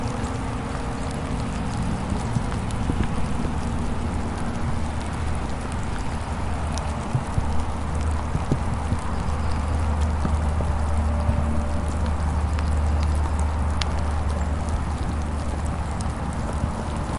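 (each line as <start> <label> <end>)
0.0 A bird sings in the distance. 3.0
0.0 Cars are driving. 17.2
0.0 Soft rain is falling. 17.2
9.5 A bird sings in the distance. 15.3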